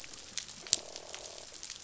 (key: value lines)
label: biophony, croak
recorder: SoundTrap 500